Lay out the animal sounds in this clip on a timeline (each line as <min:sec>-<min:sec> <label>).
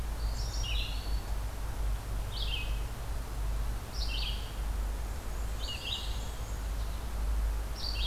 0:00.0-0:08.1 Red-eyed Vireo (Vireo olivaceus)
0:00.2-0:01.4 Eastern Wood-Pewee (Contopus virens)
0:04.9-0:06.7 Black-and-white Warbler (Mniotilta varia)